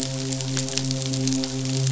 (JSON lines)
{"label": "biophony, midshipman", "recorder": "SoundTrap 500"}